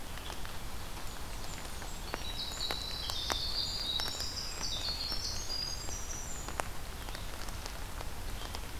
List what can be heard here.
Red-eyed Vireo, Blackburnian Warbler, Winter Wren, Pine Warbler